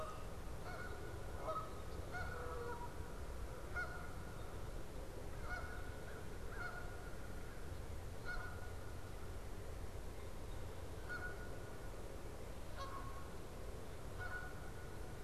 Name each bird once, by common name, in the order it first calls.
Canada Goose, American Crow